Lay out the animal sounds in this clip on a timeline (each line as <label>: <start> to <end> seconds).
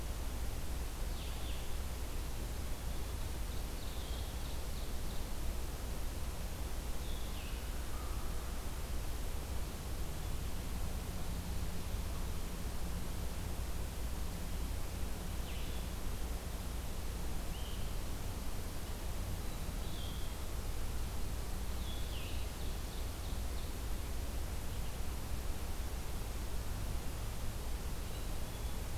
Blue-headed Vireo (Vireo solitarius): 0.0 to 7.7 seconds
Ovenbird (Seiurus aurocapilla): 2.6 to 5.4 seconds
American Crow (Corvus brachyrhynchos): 7.8 to 8.5 seconds
Blue-headed Vireo (Vireo solitarius): 15.2 to 22.5 seconds
Ovenbird (Seiurus aurocapilla): 21.3 to 23.7 seconds
Black-capped Chickadee (Poecile atricapillus): 27.8 to 28.9 seconds